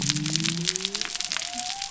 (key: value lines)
label: biophony
recorder: SoundTrap 300